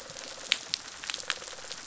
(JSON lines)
{"label": "biophony, rattle response", "recorder": "SoundTrap 500"}